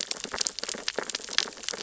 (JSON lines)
{"label": "biophony, sea urchins (Echinidae)", "recorder": "SoundTrap 600 or HydroMoth"}